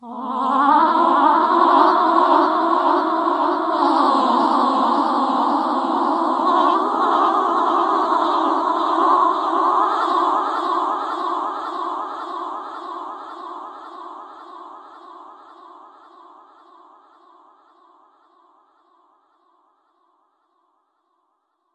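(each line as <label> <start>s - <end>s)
An echoing, creepy aria. 0.3s - 11.0s
An echo is heard. 11.0s - 21.7s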